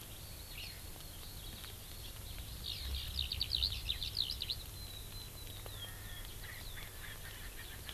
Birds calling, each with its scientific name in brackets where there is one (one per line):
Erckel's Francolin (Pternistis erckelii)
Eurasian Skylark (Alauda arvensis)